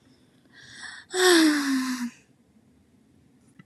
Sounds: Sigh